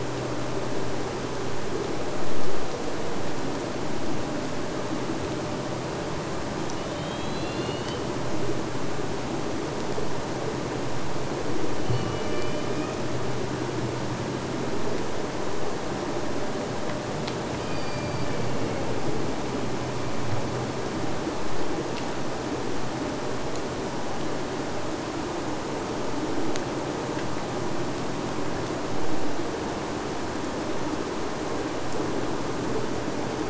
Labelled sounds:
6.6	8.1	killer whale, Bigg's (transient), AT1 transient, 2.5 to 4.7 kHz
11.8	13.1	killer whale, Bigg's (transient), AT1 transient, 1.0 to 5.3 kHz
17.4	19.0	killer whale, Bigg's (transient), AT1 transient, 1.0 to 4.9 kHz

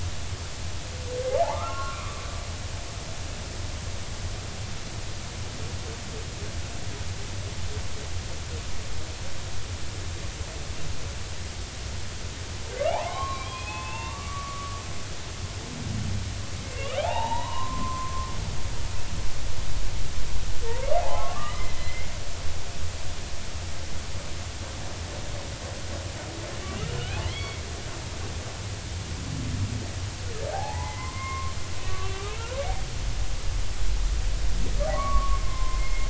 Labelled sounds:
1.4	2.2	humpback whale, 0.80 to 1.5 kHz
12.8	14.8	humpback whale, 0.80 to 3.4 kHz
16.6	18.3	humpback whale, 0.80 to 3.9 kHz
21.0	22.1	humpback whale, 0.80 to 2.2 kHz
26.9	27.6	humpback whale, 1.9 to 4.6 kHz
30.5	32.3	humpback whale, 0.80 to 2.9 kHz
34.9	36.0	humpback whale, 0.99 to 2.2 kHz

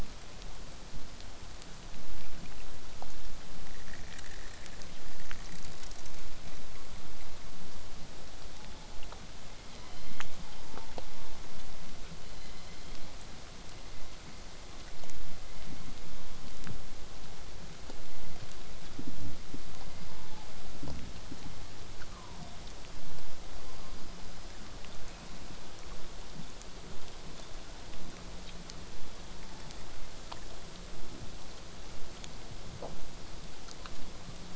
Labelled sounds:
8.5	9.2	killer whale, southern resident, 0.66 to 1.1 kHz
9.6	11.4	killer whale, southern resident, 0.74 to 5.5 kHz
12.2	13.1	killer whale, southern resident, 1.9 to 5.3 kHz
18.1	18.4	killer whale, southern resident, 1.8 to 2.4 kHz
19.9	20.5	killer whale, southern resident, 0.62 to 5.1 kHz
21.3	21.6	killer whale, southern resident, 3.0 to 4.2 kHz
23.5	24.4	killer whale, southern resident, 4.4 to 4.9 kHz
29.5	30.3	killer whale, southern resident, 0.70 to 3.7 kHz

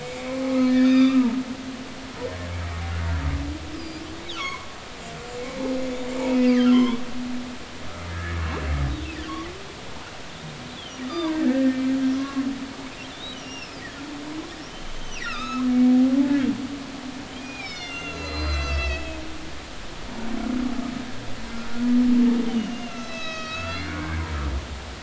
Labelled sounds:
0.0	1.3	humpback whale, 0.93 to 5.0 kHz
3.8	4.7	humpback whale, 0.96 to 7.3 kHz
6.3	7.0	humpback whale, 0.90 to 3.5 kHz
8.1	8.4	humpback whale, 1.6 to 1.9 kHz
10.3	11.8	humpback whale, 0.90 to 3.7 kHz
12.2	12.4	humpback whale, 1.0 to 1.2 kHz
13.1	13.8	humpback whale, 2.4 to 6.0 kHz
14.9	16.0	humpback whale, 1.2 to 6.3 kHz
17.4	19.2	humpback whale, 1.3 to 7.6 kHz
22.5	24.2	humpback whale, 1.2 to 6.7 kHz

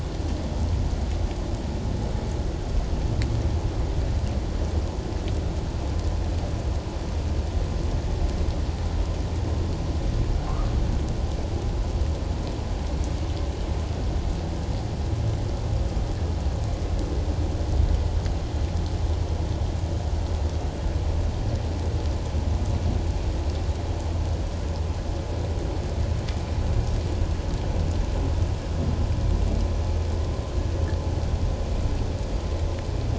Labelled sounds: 10.4	10.7	humpback whale, 1.0 to 1.3 kHz

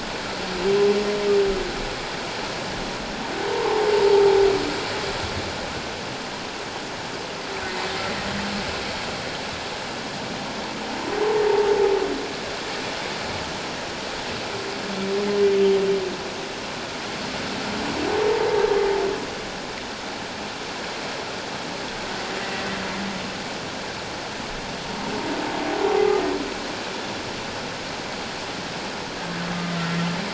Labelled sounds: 3.5	3.9	humpback whale, 0.78 to 1.2 kHz

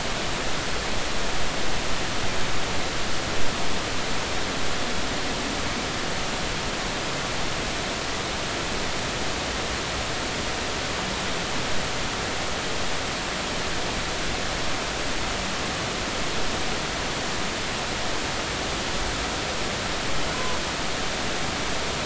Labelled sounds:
20.3	20.6	humpback whale, 0.96 to 1.1 kHz

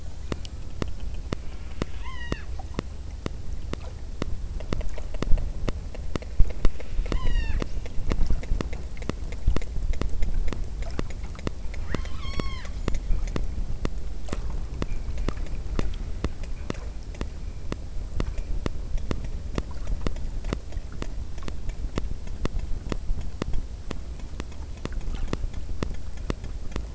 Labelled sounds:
1.5	2.6	killer whale, southern Alaska resident, 0.48 to 6.7 kHz
6.3	7.9	killer whale, southern Alaska resident, 0.78 to 7.9 kHz
12.0	13.0	killer whale, southern Alaska resident, 0.82 to 8.0 kHz

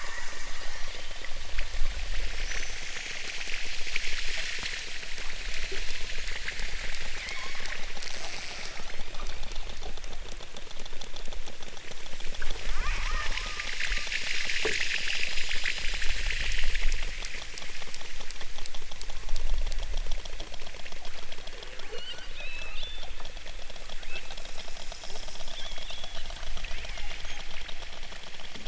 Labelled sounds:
0.6	1.3	killer whale, southern Alaska resident, 2.0 to 4.7 kHz
7.1	7.7	killer whale, southern Alaska resident, 1.5 to 6.4 kHz
8.6	9.4	killer whale, southern Alaska resident, 2.6 to 8.0 kHz
12.4	13.4	killer whale, southern Alaska resident, 0.37 to 2.3 kHz
21.9	23.1	killer whale, southern Alaska resident, 1.1 to 8.0 kHz
23.9	24.4	killer whale, southern Alaska resident, 1.2 to 3.2 kHz
25.5	26.1	killer whale, southern Alaska resident, 1.4 to 4.6 kHz
26.6	27.2	killer whale, southern Alaska resident, 1.2 to 3.5 kHz

